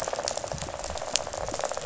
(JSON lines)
{"label": "biophony, rattle", "recorder": "SoundTrap 500"}